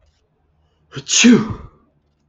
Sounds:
Sneeze